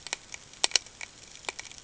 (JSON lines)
{"label": "ambient", "recorder": "HydroMoth"}